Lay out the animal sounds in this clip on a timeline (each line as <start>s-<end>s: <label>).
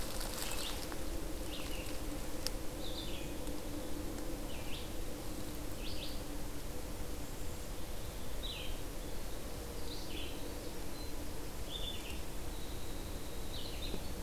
0.0s-13.9s: Red-eyed Vireo (Vireo olivaceus)
7.7s-13.9s: Winter Wren (Troglodytes hiemalis)